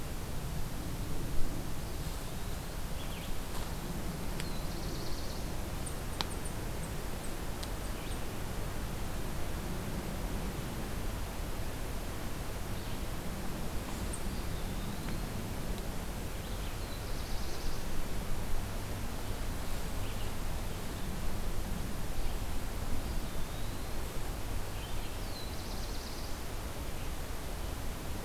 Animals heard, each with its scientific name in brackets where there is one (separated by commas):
Black-capped Chickadee (Poecile atricapillus), Black-throated Blue Warbler (Setophaga caerulescens), Eastern Wood-Pewee (Contopus virens)